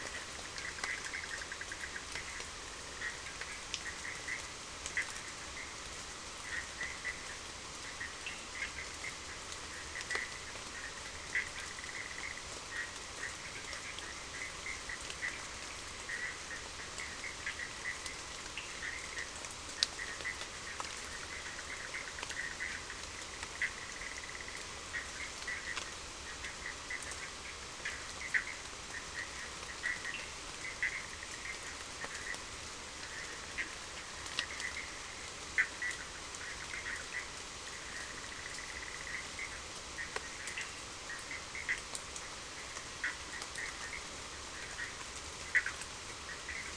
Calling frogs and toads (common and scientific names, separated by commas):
Bischoff's tree frog (Boana bischoffi)